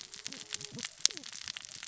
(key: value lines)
label: biophony, cascading saw
recorder: SoundTrap 600 or HydroMoth